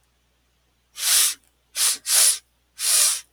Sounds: Sniff